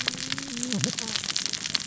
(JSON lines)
{"label": "biophony, cascading saw", "recorder": "SoundTrap 600 or HydroMoth"}